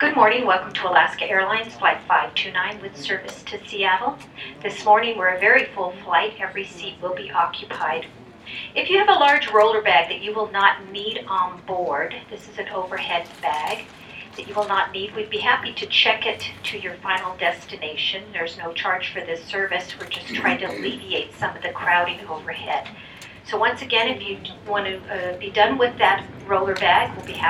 Where are the people?
airplane